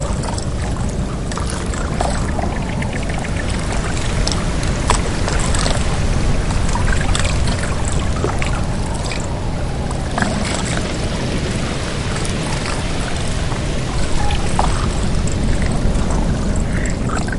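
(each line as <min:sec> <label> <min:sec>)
0:00.0 A waterfall is heard prominently, accompanied by various natural sounds such as wind. 0:17.3
0:08.1 Low wind sound with the soothing noise of a waterfall and nature in the background. 0:11.0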